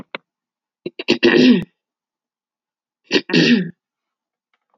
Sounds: Throat clearing